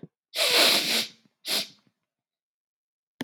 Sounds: Sniff